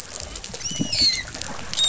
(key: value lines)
label: biophony, dolphin
recorder: SoundTrap 500